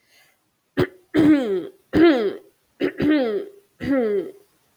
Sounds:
Throat clearing